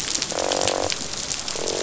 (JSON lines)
{"label": "biophony, croak", "recorder": "SoundTrap 500"}